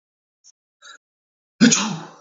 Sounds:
Sneeze